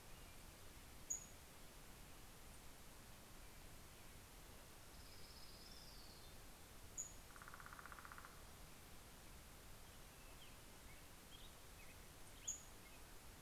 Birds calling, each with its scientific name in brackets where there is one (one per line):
Northern Flicker (Colaptes auratus)
Pacific-slope Flycatcher (Empidonax difficilis)
Orange-crowned Warbler (Leiothlypis celata)